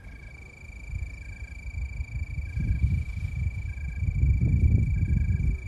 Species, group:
Oecanthus californicus
Orthoptera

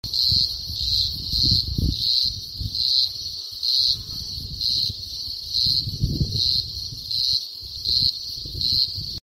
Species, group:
Cyclochila australasiae
Cicadidae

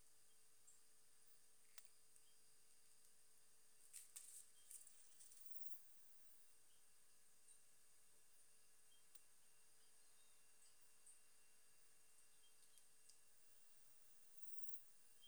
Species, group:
Poecilimon jonicus
Orthoptera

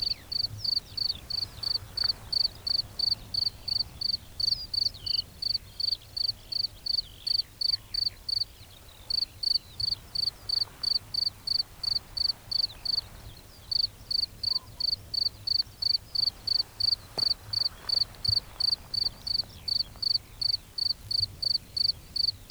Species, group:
Gryllus campestris
Orthoptera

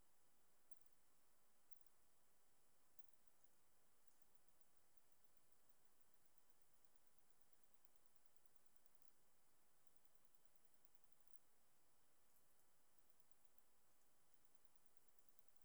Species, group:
Phaneroptera nana
Orthoptera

